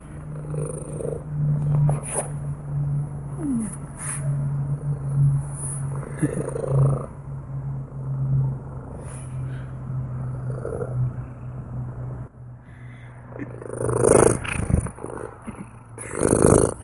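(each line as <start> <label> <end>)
3.5 A person reacting to a cat. 3.9
13.2 A cat is purring. 16.8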